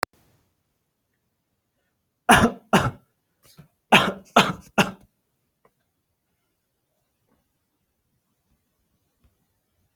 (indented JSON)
{
  "expert_labels": [
    {
      "quality": "good",
      "cough_type": "dry",
      "dyspnea": false,
      "wheezing": false,
      "stridor": false,
      "choking": false,
      "congestion": false,
      "nothing": true,
      "diagnosis": "COVID-19",
      "severity": "unknown"
    }
  ],
  "age": 30,
  "gender": "male",
  "respiratory_condition": false,
  "fever_muscle_pain": false,
  "status": "healthy"
}